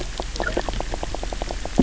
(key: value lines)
label: biophony, knock croak
recorder: SoundTrap 300